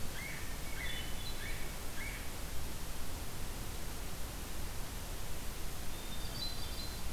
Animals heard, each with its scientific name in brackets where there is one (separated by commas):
Cooper's Hawk (Astur cooperii), Hermit Thrush (Catharus guttatus)